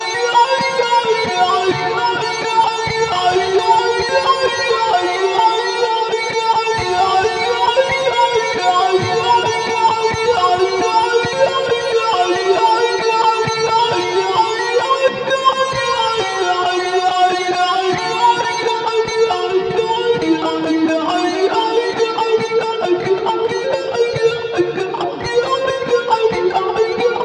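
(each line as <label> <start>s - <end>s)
An electric guitar plays single notes in sequence with a voice-like filter. 0.0s - 27.2s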